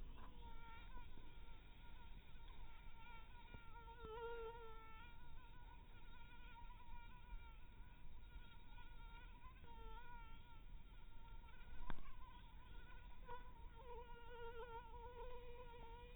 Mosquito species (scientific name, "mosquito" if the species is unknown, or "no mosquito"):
mosquito